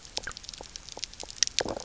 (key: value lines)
label: biophony, low growl
recorder: SoundTrap 300